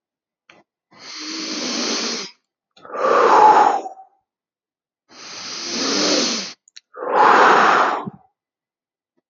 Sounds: Sigh